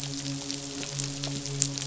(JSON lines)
{"label": "biophony, midshipman", "recorder": "SoundTrap 500"}